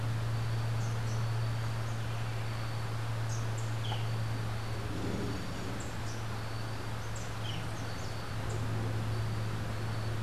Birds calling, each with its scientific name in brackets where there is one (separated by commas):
Boat-billed Flycatcher (Megarynchus pitangua), Rufous-capped Warbler (Basileuterus rufifrons)